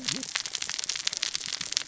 {"label": "biophony, cascading saw", "recorder": "SoundTrap 600 or HydroMoth"}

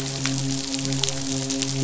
{"label": "biophony, midshipman", "recorder": "SoundTrap 500"}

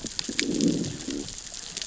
{"label": "biophony, growl", "recorder": "SoundTrap 600 or HydroMoth"}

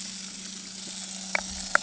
{"label": "anthrophony, boat engine", "recorder": "HydroMoth"}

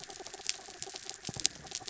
{"label": "anthrophony, mechanical", "recorder": "SoundTrap 300"}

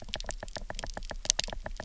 {"label": "biophony, knock", "recorder": "SoundTrap 300"}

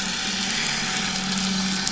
{"label": "anthrophony, boat engine", "recorder": "SoundTrap 500"}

